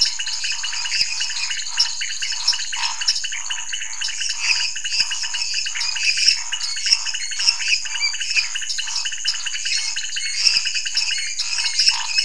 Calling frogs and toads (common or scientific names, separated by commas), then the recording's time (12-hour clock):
lesser tree frog, dwarf tree frog, pointedbelly frog, Scinax fuscovarius
10:00pm